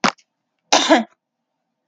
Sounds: Cough